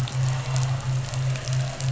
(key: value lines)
label: anthrophony, boat engine
recorder: SoundTrap 500